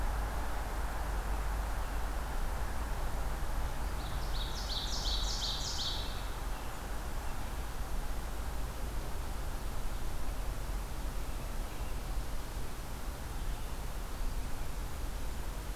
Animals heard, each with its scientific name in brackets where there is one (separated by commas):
Ovenbird (Seiurus aurocapilla)